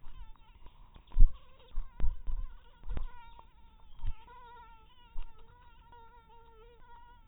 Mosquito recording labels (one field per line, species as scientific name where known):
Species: mosquito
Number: one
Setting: cup